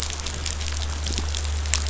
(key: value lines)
label: anthrophony, boat engine
recorder: SoundTrap 500